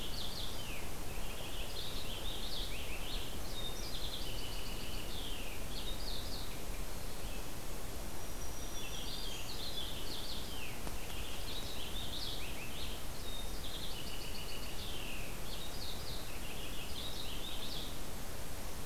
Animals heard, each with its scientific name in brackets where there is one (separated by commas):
Purple Finch (Haemorhous purpureus), Black-throated Green Warbler (Setophaga virens)